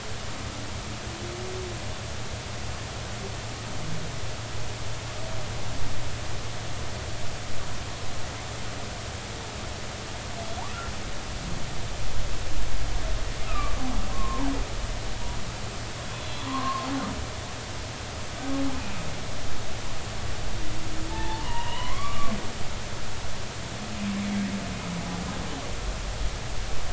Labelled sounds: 13.4	13.8	humpback whale, 1.1 to 2.7 kHz
14.1	14.5	humpback whale, 0.80 to 1.2 kHz
16.2	16.9	humpback whale, 0.96 to 4.1 kHz
21.1	22.4	humpback whale, 0.83 to 3.1 kHz

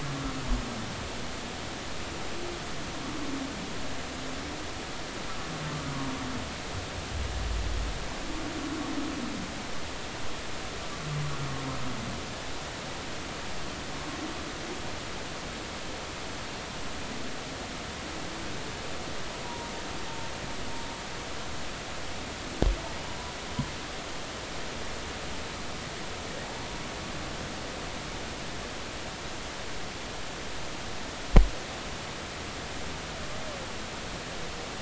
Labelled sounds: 19.4	19.7	humpback whale, 0.90 to 0.99 kHz

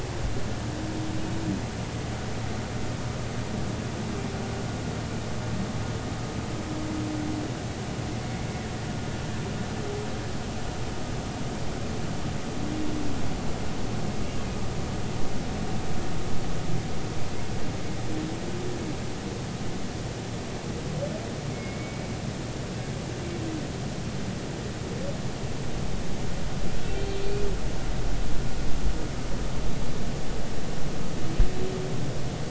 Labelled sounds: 21.5	22.1	humpback whale, 2.1 to 2.3 kHz

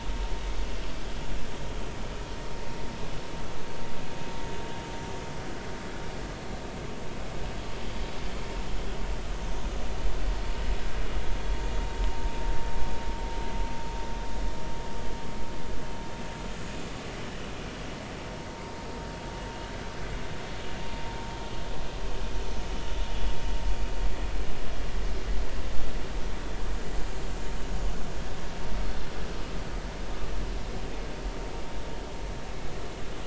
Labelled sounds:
28.8	29.1	Pacific white-sided dolphin, 4.1 to 4.3 kHz

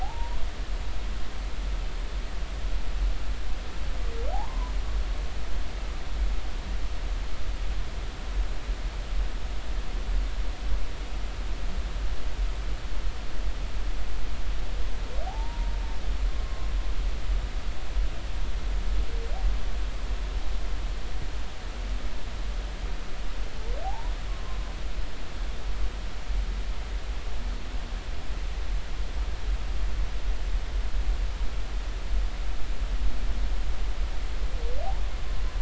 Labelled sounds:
0.0	0.4	humpback whale, 0.80 to 1.1 kHz
4.3	4.7	humpback whale, 0.80 to 1.1 kHz
15.2	15.7	humpback whale, 0.80 to 0.99 kHz
23.8	24.6	humpback whale, 0.80 to 1.2 kHz

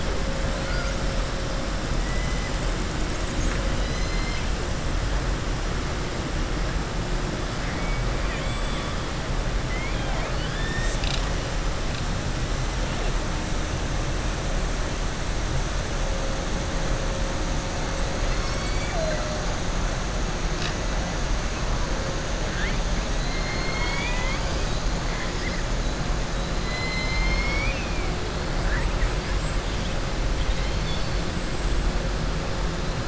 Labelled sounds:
3.7	4.5	killer whale, southern resident, 2.0 to 6.2 kHz
7.6	8.9	killer whale, southern resident, 1.1 to 3.5 kHz
23.1	24.8	killer whale, southern resident, 0.98 to 5.3 kHz
26.6	28.1	killer whale, southern resident, 2.0 to 6.3 kHz
30.3	31.1	killer whale, southern resident, 3.0 to 5.4 kHz

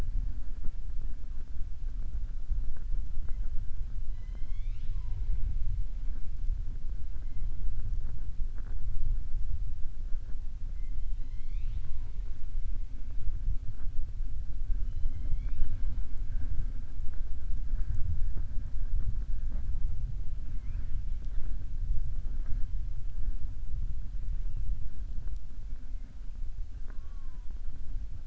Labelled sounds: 4.0	5.4	killer whale, southern resident, 0.33 to 5.6 kHz
11.0	12.2	killer whale, southern resident, 0.76 to 5.3 kHz
20.4	21.0	killer whale, southern resident, 0.99 to 3.1 kHz

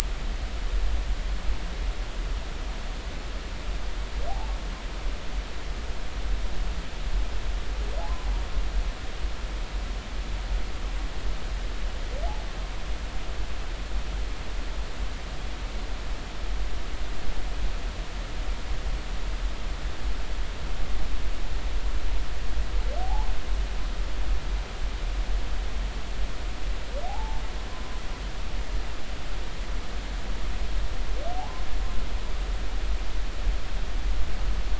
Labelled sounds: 4.3	4.5	humpback whale, 0.80 to 0.93 kHz
23.0	23.3	humpback whale, 0.80 to 1.1 kHz
27.0	27.4	humpback whale, 0.80 to 0.96 kHz
31.3	31.7	humpback whale, 0.80 to 1.1 kHz

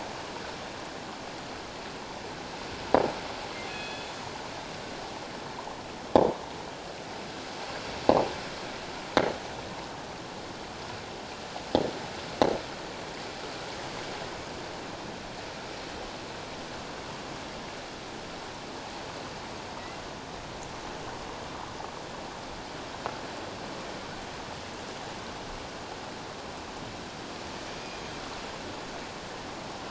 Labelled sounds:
3.7	4.1	killer whale, northern resident, G clan, 2.5 to 4.3 kHz
27.8	28.1	killer whale, northern resident, G clan, 4.8 to 5.0 kHz

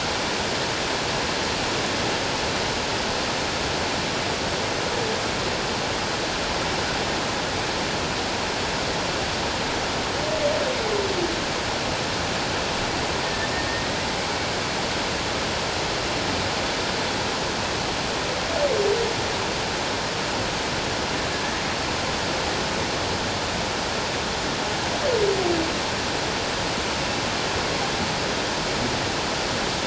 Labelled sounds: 13.2	14.0	humpback whale, 1.7 to 2.0 kHz

